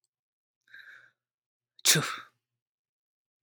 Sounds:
Sneeze